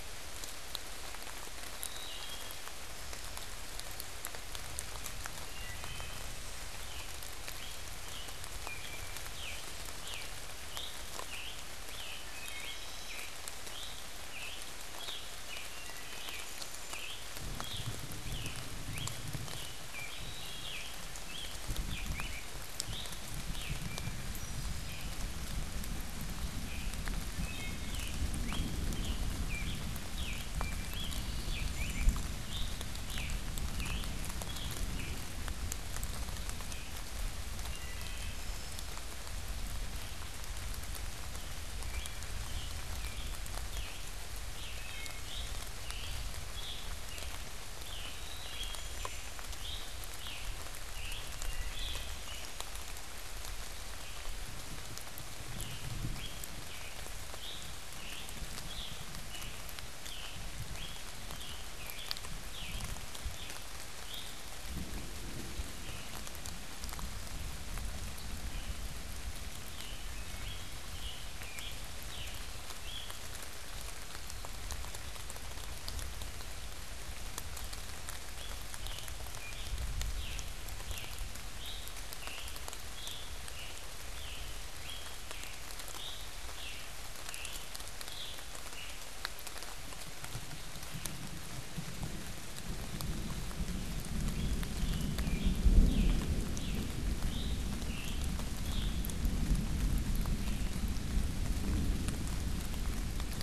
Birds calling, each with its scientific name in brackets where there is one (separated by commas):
unidentified bird, Wood Thrush (Hylocichla mustelina), Scarlet Tanager (Piranga olivacea)